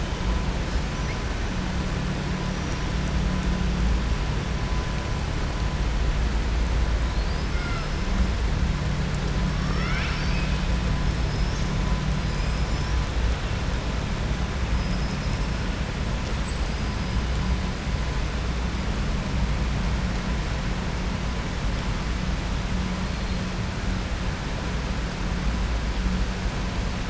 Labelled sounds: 7.5	7.9	killer whale, southern resident, 0.67 to 2.8 kHz
9.5	10.6	killer whale, southern resident, 1.2 to 5.9 kHz
14.7	15.4	killer whale, southern resident, 4.5 to 5.7 kHz

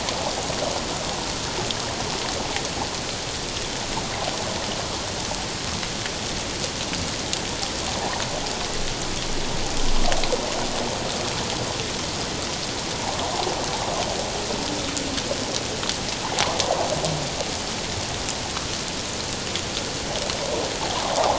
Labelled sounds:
8.0	8.2	water noise, 0.81 to 1.1 kHz

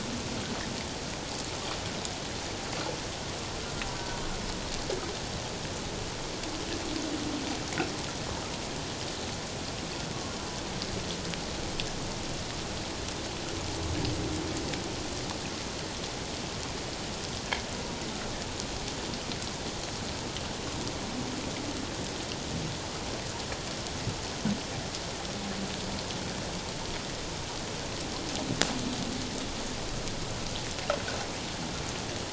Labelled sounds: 4.0	4.2	humpback whale, 1.4 to 1.6 kHz
10.1	10.4	humpback whale, 1.0 to 1.2 kHz

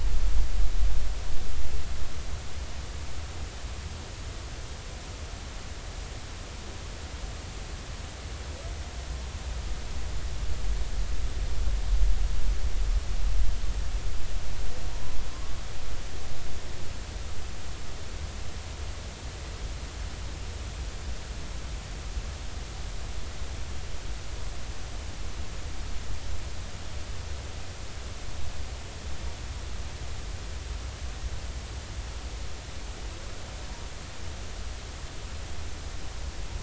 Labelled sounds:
14.9	15.2	humpback whale, 0.90 to 1.0 kHz

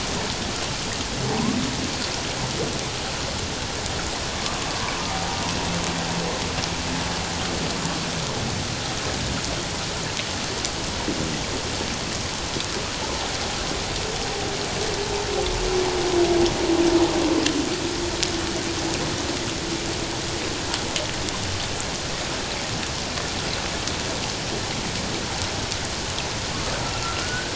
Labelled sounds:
15.0	15.3	humpback whale, 0.84 to 1.0 kHz
27.2	27.5	humpback whale, 1.3 to 1.7 kHz

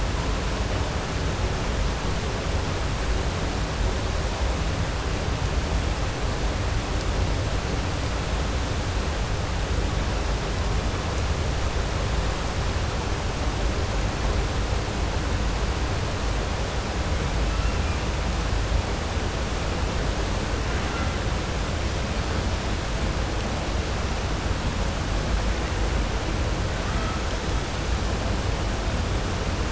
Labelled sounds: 20.7	21.1	killer whale, 0.77 to 2.8 kHz

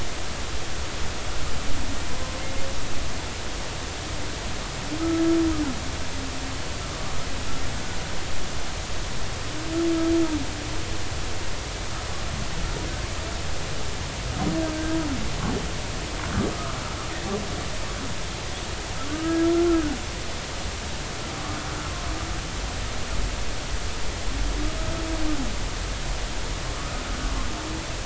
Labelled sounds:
5.0	5.2	humpback whale, 1.2 to 1.3 kHz
16.5	16.8	humpback whale, 1.1 to 1.4 kHz
19.1	19.9	humpback whale, 1.1 to 1.4 kHz

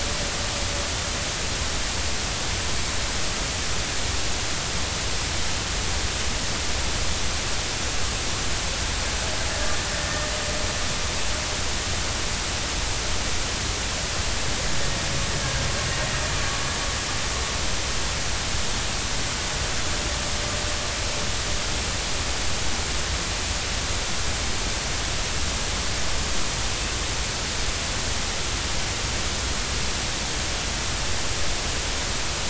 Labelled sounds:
10.0	10.3	killer whale, Bigg's (transient), 1.8 to 1.9 kHz

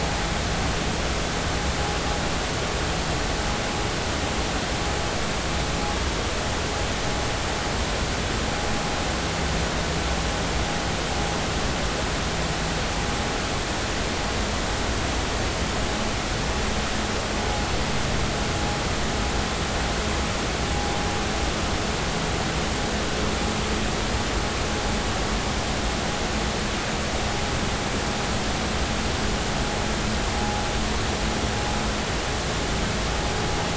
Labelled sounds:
30.4	30.6	vessel noise, 0.80 to 0.86 kHz

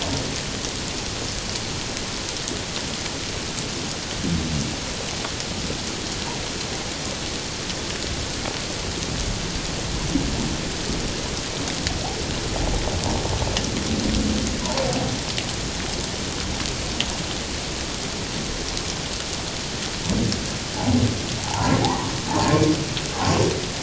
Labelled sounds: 14.6	14.9	humpback whale, 0.84 to 1.0 kHz
20.7	21.8	humpback whale, 0.78 to 1.1 kHz

